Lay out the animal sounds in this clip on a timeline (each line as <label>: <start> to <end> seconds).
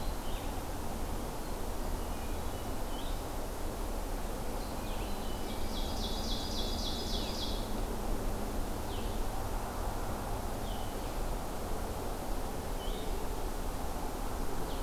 Red-eyed Vireo (Vireo olivaceus): 0.0 to 3.4 seconds
Hermit Thrush (Catharus guttatus): 1.6 to 2.9 seconds
Red-eyed Vireo (Vireo olivaceus): 4.5 to 14.8 seconds
Ovenbird (Seiurus aurocapilla): 5.1 to 7.8 seconds